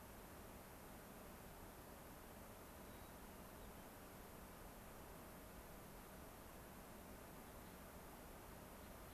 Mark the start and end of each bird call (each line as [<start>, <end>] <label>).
[2.83, 3.83] White-crowned Sparrow (Zonotrichia leucophrys)
[8.73, 9.13] Gray-crowned Rosy-Finch (Leucosticte tephrocotis)